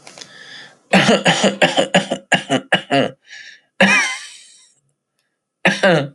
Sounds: Cough